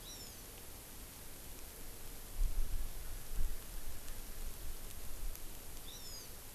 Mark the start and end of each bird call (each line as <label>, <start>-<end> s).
Hawaiian Hawk (Buteo solitarius), 0.1-0.5 s
Hawaii Amakihi (Chlorodrepanis virens), 5.9-6.3 s